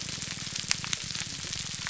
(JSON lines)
{"label": "biophony, grouper groan", "recorder": "SoundTrap 300"}